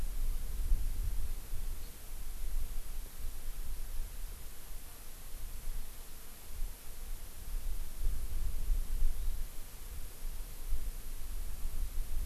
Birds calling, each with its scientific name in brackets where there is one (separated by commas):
Hawaii Amakihi (Chlorodrepanis virens)